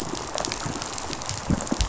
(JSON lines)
{"label": "biophony, rattle response", "recorder": "SoundTrap 500"}